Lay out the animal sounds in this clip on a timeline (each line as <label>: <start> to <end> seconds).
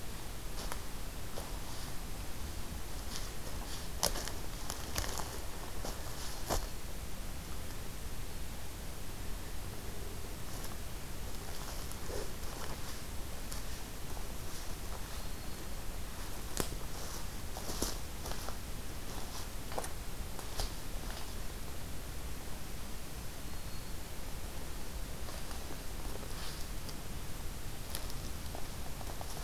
Black-throated Green Warbler (Setophaga virens): 6.1 to 6.9 seconds
Black-throated Green Warbler (Setophaga virens): 15.1 to 15.7 seconds
Black-throated Green Warbler (Setophaga virens): 23.3 to 24.1 seconds